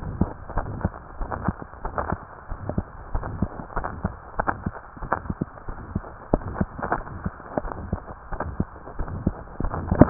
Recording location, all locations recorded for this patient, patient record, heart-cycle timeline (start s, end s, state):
tricuspid valve (TV)
aortic valve (AV)+pulmonary valve (PV)+tricuspid valve (TV)+mitral valve (MV)
#Age: Child
#Sex: Male
#Height: 130.0 cm
#Weight: 23.2 kg
#Pregnancy status: False
#Murmur: Present
#Murmur locations: aortic valve (AV)+mitral valve (MV)+pulmonary valve (PV)+tricuspid valve (TV)
#Most audible location: aortic valve (AV)
#Systolic murmur timing: Mid-systolic
#Systolic murmur shape: Diamond
#Systolic murmur grading: III/VI or higher
#Systolic murmur pitch: Medium
#Systolic murmur quality: Harsh
#Diastolic murmur timing: nan
#Diastolic murmur shape: nan
#Diastolic murmur grading: nan
#Diastolic murmur pitch: nan
#Diastolic murmur quality: nan
#Outcome: Abnormal
#Campaign: 2015 screening campaign
0.00	3.74	unannotated
3.74	3.84	S1
3.84	4.00	systole
4.00	4.12	S2
4.12	4.36	diastole
4.36	4.50	S1
4.50	4.62	systole
4.62	4.72	S2
4.72	5.00	diastole
5.00	5.12	S1
5.12	5.24	systole
5.24	5.36	S2
5.36	5.65	diastole
5.65	5.76	S1
5.76	5.90	systole
5.90	6.02	S2
6.02	6.32	diastole
6.32	6.41	S1
6.41	6.58	systole
6.58	6.68	S2
6.68	6.92	diastole
6.92	7.04	S1
7.04	7.22	systole
7.22	7.31	S2
7.31	7.62	diastole
7.62	7.74	S1
7.74	7.86	systole
7.86	8.00	S2
8.00	8.31	diastole
8.31	8.41	S1
8.41	8.58	systole
8.58	8.70	S2
8.70	8.94	diastole
8.94	9.08	S1
9.08	9.23	systole
9.23	9.33	S2
9.33	9.59	diastole
9.59	9.72	S1
9.72	9.89	systole
9.89	9.98	S2
9.98	10.10	unannotated